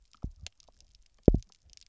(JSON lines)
{"label": "biophony, double pulse", "recorder": "SoundTrap 300"}